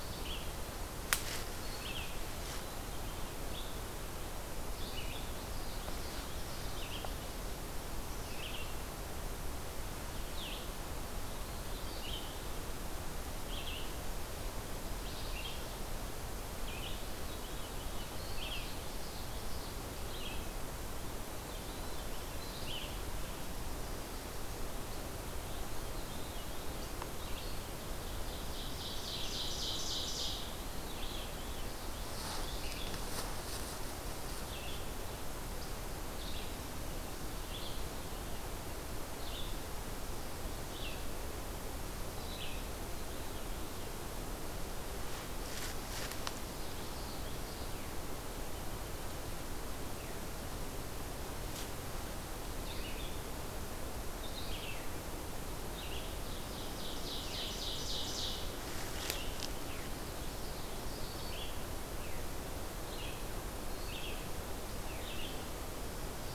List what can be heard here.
Red-eyed Vireo, Common Yellowthroat, Veery, Ovenbird